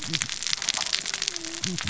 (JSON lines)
{"label": "biophony, cascading saw", "recorder": "SoundTrap 600 or HydroMoth"}